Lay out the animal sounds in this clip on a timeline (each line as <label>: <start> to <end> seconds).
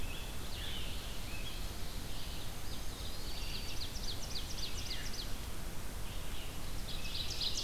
Scarlet Tanager (Piranga olivacea): 0.0 to 1.6 seconds
Red-eyed Vireo (Vireo olivaceus): 0.0 to 7.6 seconds
Eastern Wood-Pewee (Contopus virens): 2.5 to 3.9 seconds
Ovenbird (Seiurus aurocapilla): 3.0 to 5.5 seconds
Ovenbird (Seiurus aurocapilla): 6.6 to 7.6 seconds